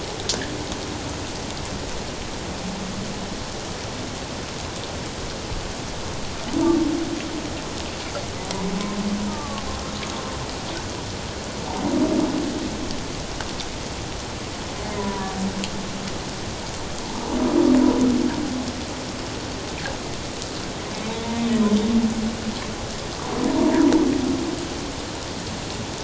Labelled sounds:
9.3	9.6	humpback whale, 0.81 to 1.3 kHz
14.9	15.3	humpback whale, 0.94 to 1.1 kHz
23.6	23.9	humpback whale, 0.88 to 1.0 kHz

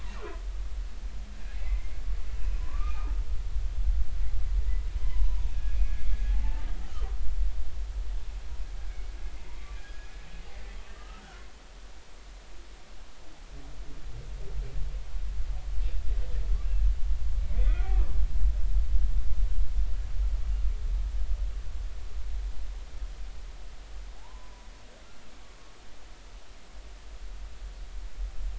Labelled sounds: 0.2	0.4	humpback whale, 0.96 to 1.1 kHz
1.6	3.1	humpback whale, 0.96 to 2.5 kHz
5.0	6.7	humpback whale, 0.80 to 2.6 kHz
8.9	10.1	humpback whale, 0.90 to 2.5 kHz
10.5	11.5	humpback whale, 1.2 to 2.2 kHz
17.5	18.0	humpback whale, 1.8 to 2.2 kHz
24.2	24.7	humpback whale, 0.80 to 1.1 kHz

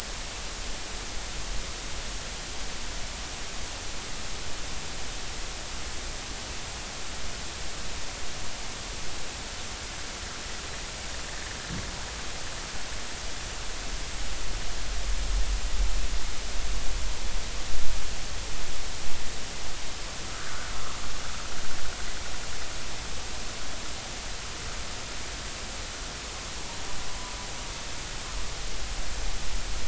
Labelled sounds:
20.2	20.7	humpback whale, 1.2 to 1.7 kHz

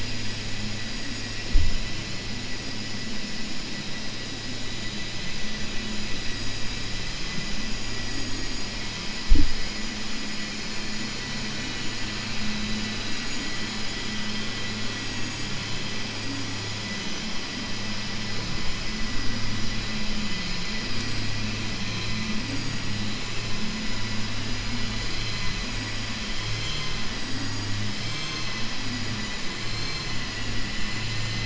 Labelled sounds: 26.3	26.9	vessel noise, 1.3 to 7.4 kHz

